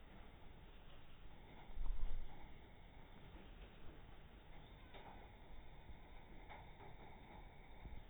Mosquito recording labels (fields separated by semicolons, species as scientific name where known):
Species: no mosquito; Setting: cup